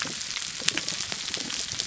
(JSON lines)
{"label": "biophony, damselfish", "recorder": "SoundTrap 300"}